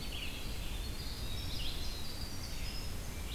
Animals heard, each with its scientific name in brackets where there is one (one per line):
Winter Wren (Troglodytes hiemalis)
Red-eyed Vireo (Vireo olivaceus)